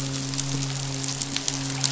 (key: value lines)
label: biophony, midshipman
recorder: SoundTrap 500